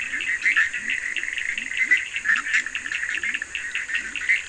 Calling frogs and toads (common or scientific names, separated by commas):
Leptodactylus latrans, Bischoff's tree frog, Cochran's lime tree frog